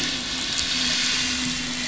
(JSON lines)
{"label": "anthrophony, boat engine", "recorder": "SoundTrap 500"}